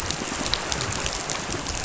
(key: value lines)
label: biophony
recorder: SoundTrap 500